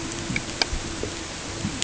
{"label": "ambient", "recorder": "HydroMoth"}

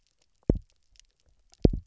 {"label": "biophony, double pulse", "recorder": "SoundTrap 300"}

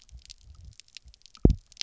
{"label": "biophony, double pulse", "recorder": "SoundTrap 300"}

